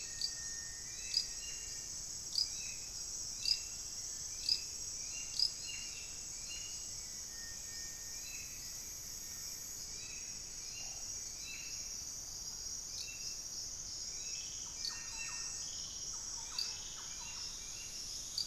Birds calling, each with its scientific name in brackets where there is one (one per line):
Amazonian Motmot (Momotus momota)
Thrush-like Wren (Campylorhynchus turdinus)
Hauxwell's Thrush (Turdus hauxwelli)
Black-faced Antthrush (Formicarius analis)